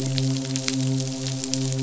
{"label": "biophony, midshipman", "recorder": "SoundTrap 500"}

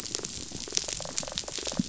{"label": "biophony, rattle response", "recorder": "SoundTrap 500"}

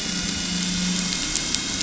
{"label": "anthrophony, boat engine", "recorder": "SoundTrap 500"}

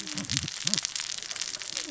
{"label": "biophony, cascading saw", "recorder": "SoundTrap 600 or HydroMoth"}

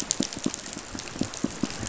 {"label": "biophony, pulse", "recorder": "SoundTrap 500"}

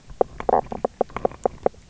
{"label": "biophony, knock croak", "recorder": "SoundTrap 300"}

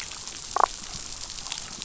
{"label": "biophony, damselfish", "recorder": "SoundTrap 500"}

